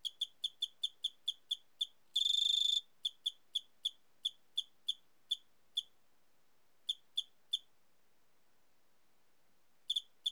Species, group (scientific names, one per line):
Eugryllodes escalerae
Orthoptera